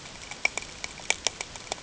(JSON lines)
{"label": "ambient", "recorder": "HydroMoth"}